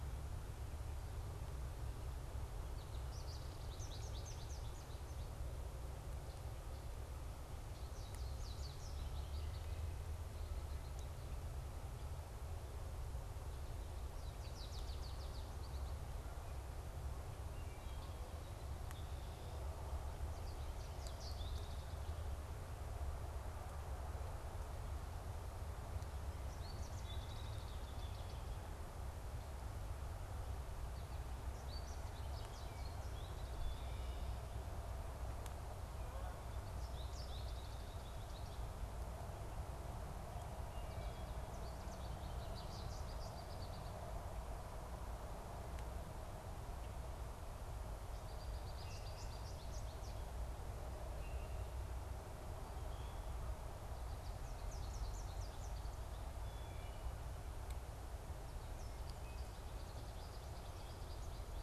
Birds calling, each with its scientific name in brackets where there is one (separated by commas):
American Goldfinch (Spinus tristis), Wood Thrush (Hylocichla mustelina), Common Grackle (Quiscalus quiscula)